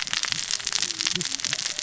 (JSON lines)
{"label": "biophony, cascading saw", "recorder": "SoundTrap 600 or HydroMoth"}